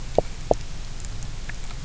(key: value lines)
label: biophony, knock croak
recorder: SoundTrap 300